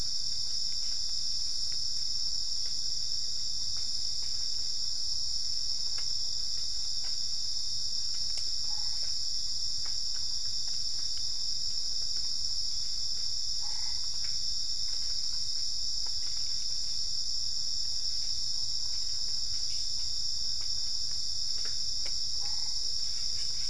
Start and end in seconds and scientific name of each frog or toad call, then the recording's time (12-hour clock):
13.5	14.2	Boana albopunctata
22.3	22.9	Boana albopunctata
5:00am